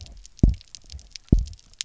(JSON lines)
{"label": "biophony, double pulse", "recorder": "SoundTrap 300"}